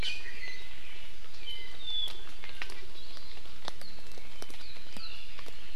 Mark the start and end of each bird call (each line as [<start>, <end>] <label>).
[0.00, 0.80] Iiwi (Drepanis coccinea)
[1.40, 2.30] Apapane (Himatione sanguinea)